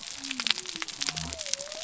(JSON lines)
{"label": "biophony", "recorder": "SoundTrap 300"}